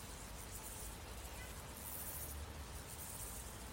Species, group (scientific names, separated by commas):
Chorthippus mollis, Orthoptera